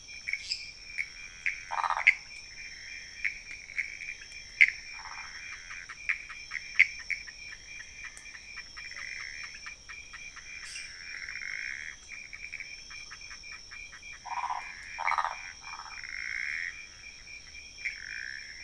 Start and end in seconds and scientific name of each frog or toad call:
0.0	18.6	Pithecopus azureus
0.3	0.7	Dendropsophus minutus
1.7	2.1	Phyllomedusa sauvagii
4.9	5.3	Phyllomedusa sauvagii
10.6	11.0	Dendropsophus minutus
14.2	16.0	Phyllomedusa sauvagii